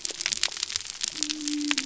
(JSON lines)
{"label": "biophony", "recorder": "SoundTrap 300"}